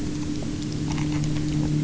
{"label": "anthrophony, boat engine", "recorder": "SoundTrap 300"}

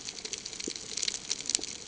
{"label": "ambient", "recorder": "HydroMoth"}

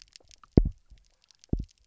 {"label": "biophony, double pulse", "recorder": "SoundTrap 300"}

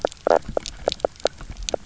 {"label": "biophony, knock croak", "recorder": "SoundTrap 300"}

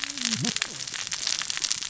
{"label": "biophony, cascading saw", "recorder": "SoundTrap 600 or HydroMoth"}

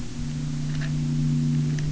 {"label": "anthrophony, boat engine", "recorder": "SoundTrap 300"}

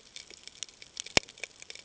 {"label": "ambient", "recorder": "HydroMoth"}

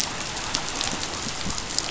{"label": "biophony", "recorder": "SoundTrap 500"}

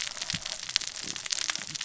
{"label": "biophony, cascading saw", "recorder": "SoundTrap 600 or HydroMoth"}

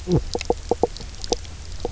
{"label": "biophony, knock croak", "recorder": "SoundTrap 300"}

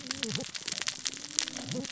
{"label": "biophony, cascading saw", "recorder": "SoundTrap 600 or HydroMoth"}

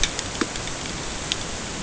{"label": "ambient", "recorder": "HydroMoth"}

